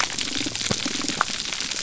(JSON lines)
{"label": "biophony", "recorder": "SoundTrap 300"}